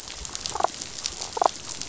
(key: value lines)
label: biophony, damselfish
recorder: SoundTrap 500